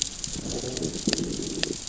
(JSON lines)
{"label": "biophony, growl", "recorder": "SoundTrap 600 or HydroMoth"}